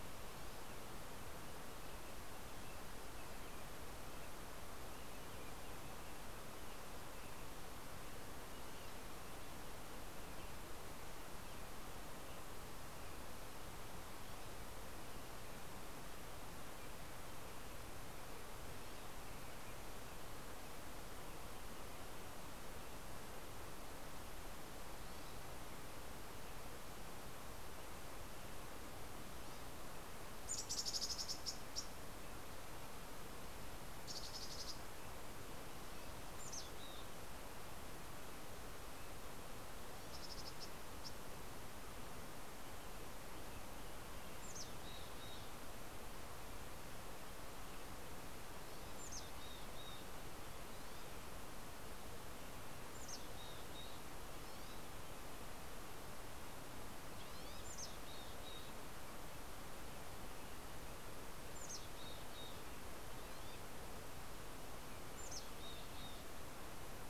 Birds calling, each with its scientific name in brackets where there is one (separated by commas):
Green-tailed Towhee (Pipilo chlorurus), Mountain Chickadee (Poecile gambeli)